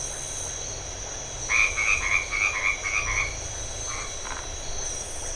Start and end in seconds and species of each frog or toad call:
1.4	3.4	white-edged tree frog
4.2	4.5	Phyllomedusa distincta
Atlantic Forest, Brazil, 8:30pm

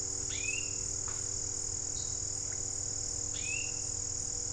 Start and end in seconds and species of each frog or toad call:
none
Cerrado, Brazil, 5:45pm

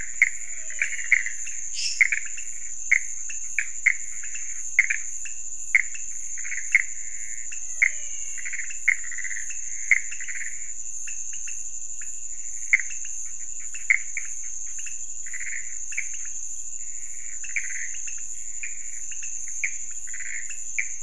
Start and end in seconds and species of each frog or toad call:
0.0	21.0	pointedbelly frog
0.0	21.0	Pithecopus azureus
0.3	1.7	menwig frog
1.7	2.6	lesser tree frog
7.5	8.9	menwig frog
Cerrado, Brazil, 2:30am

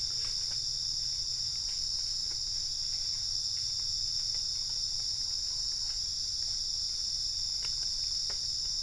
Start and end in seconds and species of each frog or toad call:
none
Cerrado, Brazil, 5:00am

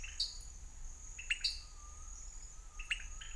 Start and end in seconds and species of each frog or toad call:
0.0	0.7	dwarf tree frog
1.1	3.3	pointedbelly frog
1.4	1.8	dwarf tree frog
Cerrado, Brazil, 6:15pm

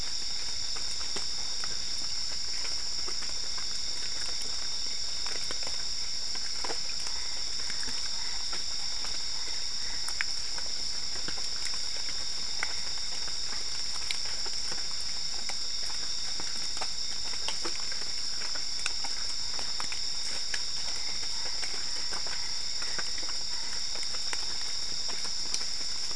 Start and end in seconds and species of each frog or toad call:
6.9	10.3	Boana albopunctata
20.8	23.3	Boana albopunctata
Cerrado, Brazil, 1:45am

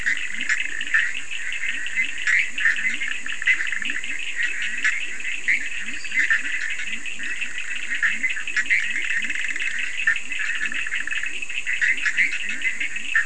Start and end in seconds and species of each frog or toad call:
0.0	13.2	Bischoff's tree frog
0.0	13.2	Leptodactylus latrans
0.0	13.2	Cochran's lime tree frog
5.8	6.6	lesser tree frog
Atlantic Forest, Brazil, 1:30am

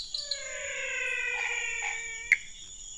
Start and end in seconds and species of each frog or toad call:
0.0	2.9	menwig frog
1.3	2.0	Chaco tree frog
2.2	2.5	Pithecopus azureus
Cerrado, Brazil, 7:45pm

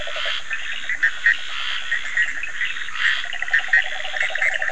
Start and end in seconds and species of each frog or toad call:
0.0	4.7	Scinax perereca
0.5	4.7	Bischoff's tree frog
0.6	1.4	Leptodactylus latrans
2.2	4.7	Cochran's lime tree frog
2.2	2.4	Leptodactylus latrans
3.2	4.7	yellow cururu toad
Atlantic Forest, Brazil, 11:30pm

